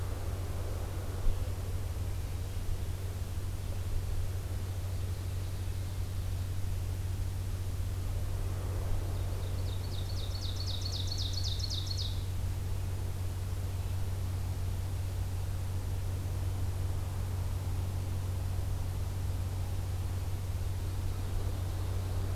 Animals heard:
Ovenbird (Seiurus aurocapilla)

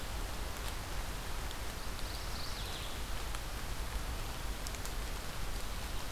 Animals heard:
Mourning Warbler (Geothlypis philadelphia)

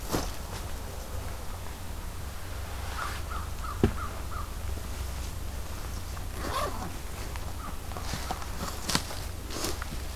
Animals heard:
American Crow (Corvus brachyrhynchos)

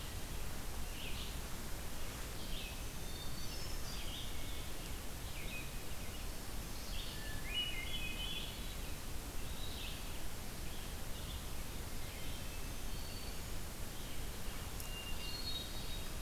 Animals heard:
Hermit Thrush (Catharus guttatus)
Black-throated Green Warbler (Setophaga virens)
Red-eyed Vireo (Vireo olivaceus)

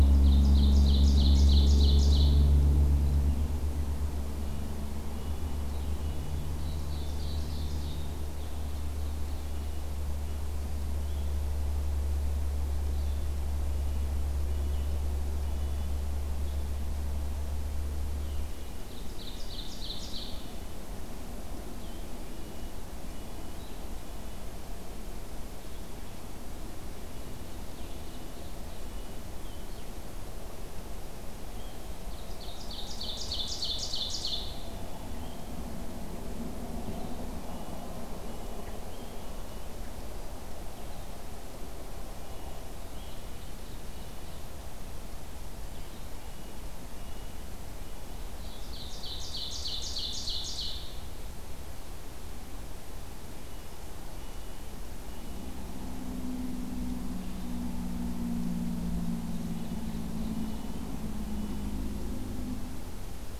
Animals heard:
Red-breasted Nuthatch (Sitta canadensis)
Blue-headed Vireo (Vireo solitarius)
Ovenbird (Seiurus aurocapilla)

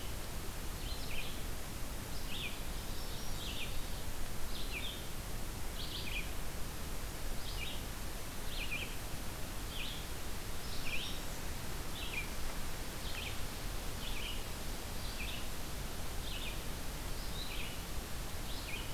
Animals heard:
American Redstart (Setophaga ruticilla)
Red-eyed Vireo (Vireo olivaceus)

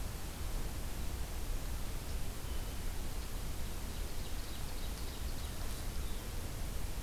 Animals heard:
Ovenbird (Seiurus aurocapilla)

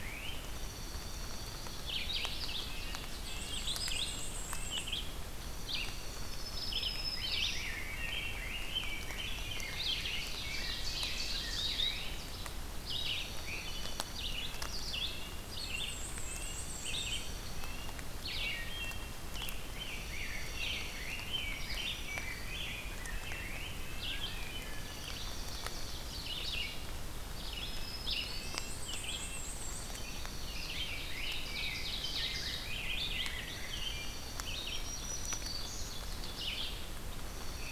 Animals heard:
Wood Thrush (Hylocichla mustelina)
Black-and-white Warbler (Mniotilta varia)
Rose-breasted Grosbeak (Pheucticus ludovicianus)
Black-throated Green Warbler (Setophaga virens)
Dark-eyed Junco (Junco hyemalis)
Red-eyed Vireo (Vireo olivaceus)
Red-breasted Nuthatch (Sitta canadensis)
Ovenbird (Seiurus aurocapilla)

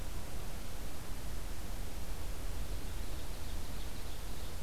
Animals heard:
Ovenbird (Seiurus aurocapilla)

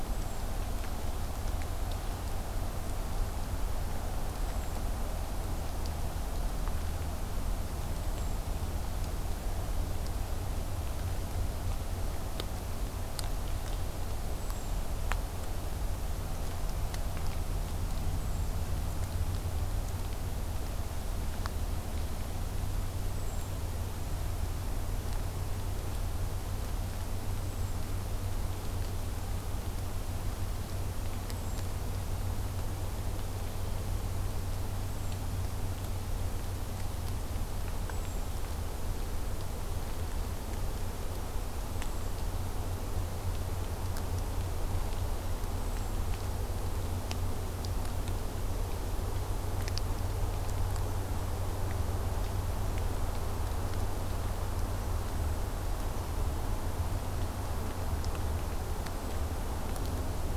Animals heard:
Hermit Thrush (Catharus guttatus)

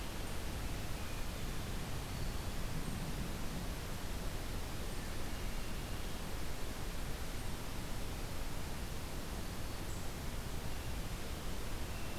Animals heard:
Hermit Thrush (Catharus guttatus)

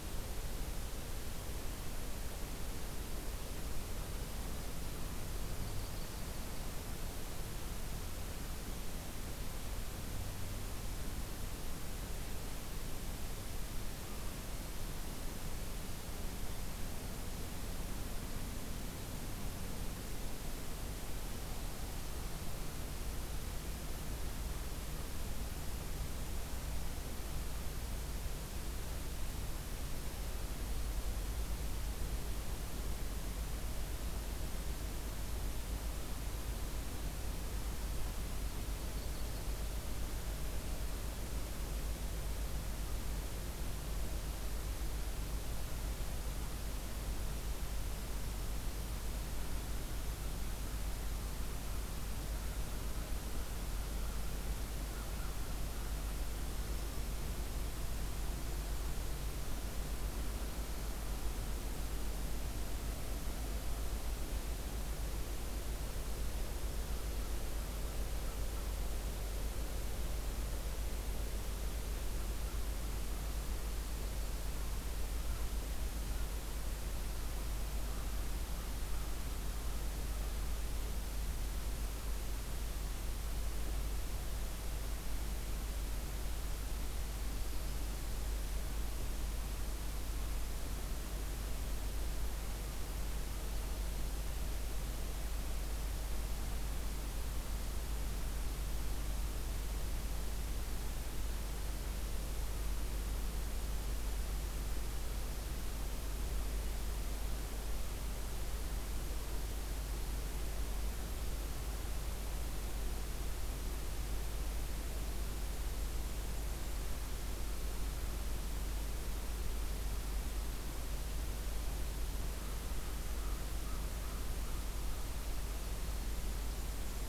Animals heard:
American Crow (Corvus brachyrhynchos)
Yellow-rumped Warbler (Setophaga coronata)

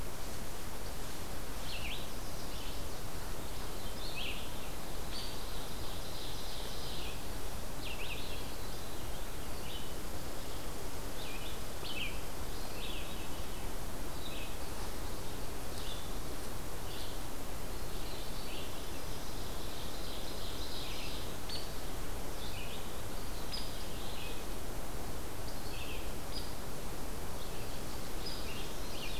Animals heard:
Red-eyed Vireo (Vireo olivaceus)
Veery (Catharus fuscescens)
Ovenbird (Seiurus aurocapilla)
Chestnut-sided Warbler (Setophaga pensylvanica)

